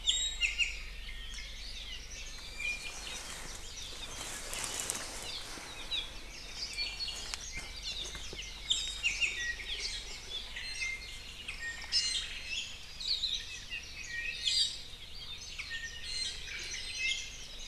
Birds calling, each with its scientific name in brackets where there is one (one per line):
Iiwi (Drepanis coccinea)
Apapane (Himatione sanguinea)
Omao (Myadestes obscurus)
Hawaii Akepa (Loxops coccineus)